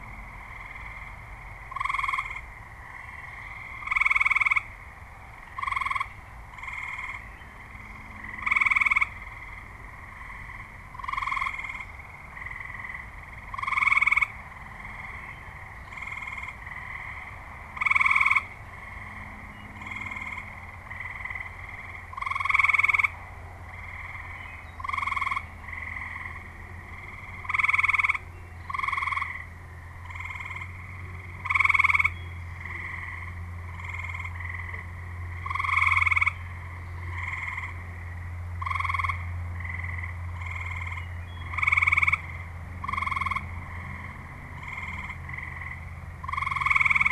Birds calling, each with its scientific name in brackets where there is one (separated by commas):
Wood Thrush (Hylocichla mustelina)